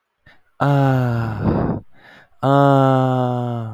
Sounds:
Sigh